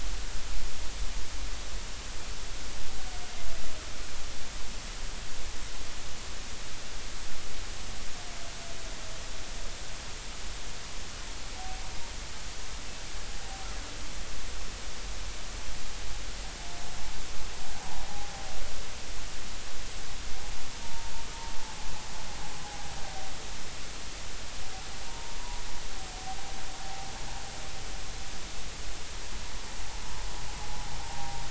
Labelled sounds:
20.8	21.1	humpback whale, 0.86 to 0.96 kHz
25.1	25.4	humpback whale, 0.86 to 1.1 kHz
31.0	31.3	humpback whale, 0.90 to 0.96 kHz

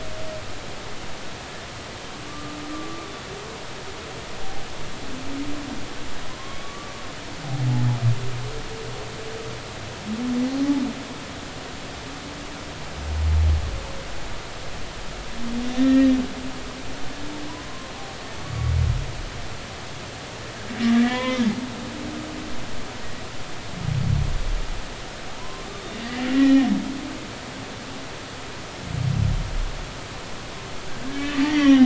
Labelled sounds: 2.3	3.1	humpback whale, 1.1 to 1.2 kHz
4.4	4.7	humpback whale, 0.80 to 0.93 kHz
6.3	6.9	humpback whale, 0.99 to 1.2 kHz
15.7	16.1	humpback whale, 1.7 to 2.0 kHz
17.7	17.9	humpback whale, 0.99 to 1.1 kHz
18.4	18.7	humpback whale, 1.1 to 1.2 kHz
21.0	21.4	humpback whale, 0.96 to 3.7 kHz
25.3	26.3	humpback whale, 0.90 to 3.7 kHz
31.1	31.8	humpback whale, 1.6 to 3.3 kHz

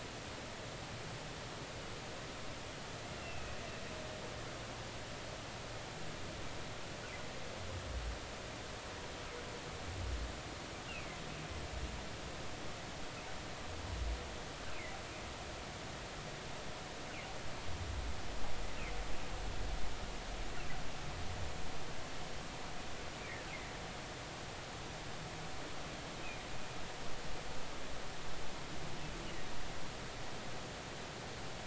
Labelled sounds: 3.2	3.6	humpback whale, 2.5 to 2.8 kHz
10.9	11.2	humpback whale, 2.0 to 2.9 kHz

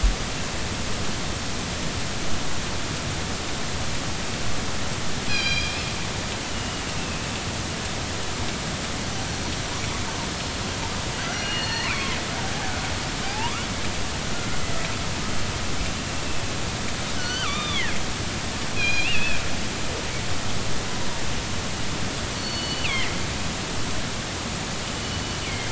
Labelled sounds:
5.3	5.8	killer whale, northern resident, G clan, call N24ii, 2.3 to 5.9 kHz
6.4	7.2	killer whale, northern resident, 2.5 to 3.1 kHz
9.3	9.6	killer whale, northern resident, 4.3 to 4.4 kHz
11.3	12.2	killer whale, northern resident, G clan, GG subclan, call N23ii, 0.96 to 6.0 kHz
11.5	11.9	killer whale, northern resident, R clan, call N33, 1.7 to 2.0 kHz
13.3	13.7	killer whale, northern resident, 0.80 to 1.5 kHz
17.1	17.9	killer whale, northern resident, G clan, GG subclan, call N23ii, 0.99 to 6.3 kHz
18.8	19.4	killer whale, northern resident, G clan, call N24ii, 1.5 to 4.2 kHz
22.4	23.8	killer whale, northern resident, G clan, GG subclan, call N23ii, 1.9 to 4.6 kHz
25.0	25.7	killer whale, northern resident, G clan, GG subclan, call N23ii, 2.0 to 3.0 kHz

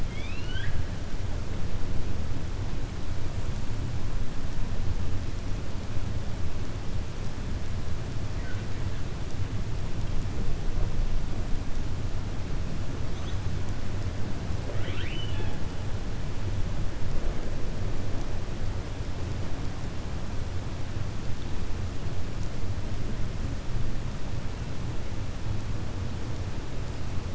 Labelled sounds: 0.0	0.8	killer whale, 1.5 to 5.8 kHz
14.6	15.6	killer whale, 0.42 to 4.0 kHz

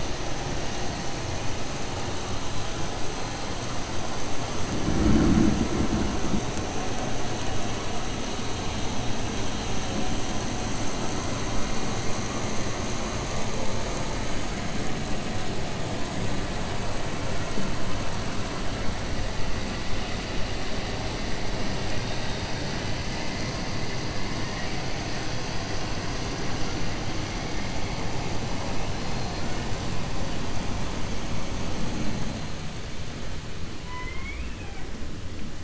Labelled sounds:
33.8	34.8	killer whale, 1.0 to 3.3 kHz

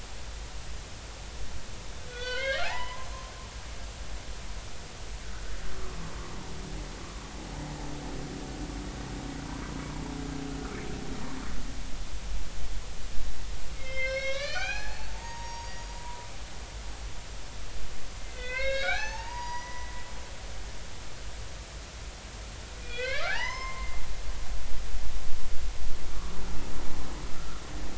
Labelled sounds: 2.0	3.1	humpback whale, 0.80 to 4.6 kHz
13.7	16.3	humpback whale, 0.80 to 6.8 kHz
18.2	19.9	humpback whale, 0.80 to 6.6 kHz
22.8	24.0	humpback whale, 0.80 to 6.4 kHz
26.1	26.4	humpback whale, 1.1 to 1.2 kHz
27.4	27.6	humpback whale, 1.2 to 1.5 kHz

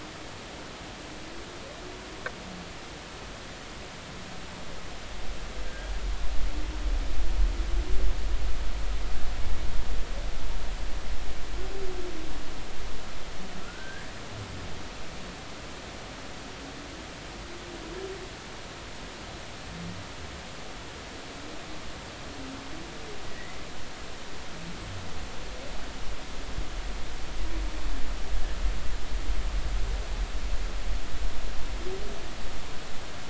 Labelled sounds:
5.6	5.9	humpback whale, 1.4 to 1.7 kHz
13.6	14.1	humpback whale, 1.2 to 1.8 kHz
23.3	23.6	humpback whale, 1.8 to 2.1 kHz

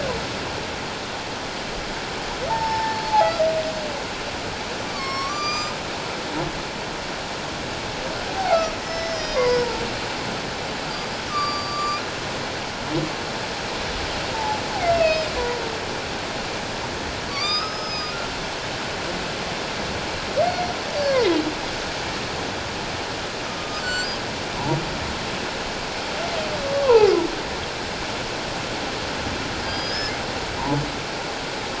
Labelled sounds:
2.5	3.3	humpback whale, 0.78 to 5.4 kHz
4.9	5.8	humpback whale, 1.0 to 7.7 kHz
8.8	9.8	humpback whale, 0.84 to 5.4 kHz
11.3	12.0	humpback whale, 1.1 to 7.3 kHz
14.3	14.6	humpback whale, 0.81 to 1.0 kHz
14.9	15.3	humpback whale, 2.4 to 2.8 kHz
17.3	18.1	humpback whale, 1.1 to 6.5 kHz
20.4	20.7	humpback whale, 2.1 to 5.9 kHz
23.6	24.2	humpback whale, 1.2 to 7.6 kHz
26.8	27.1	humpback whale, 0.78 to 1.2 kHz
29.6	30.1	humpback whale, 3.2 to 5.4 kHz

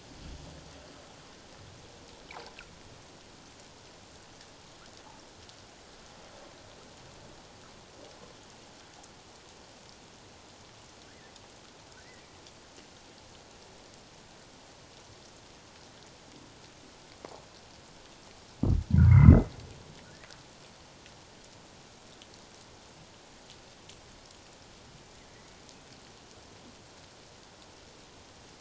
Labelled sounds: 12.0	12.2	humpback whale, 1.7 to 2.1 kHz
19.0	19.5	humpback whale, 0.94 to 2.2 kHz

